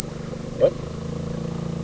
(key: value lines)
label: anthrophony, boat engine
recorder: SoundTrap 300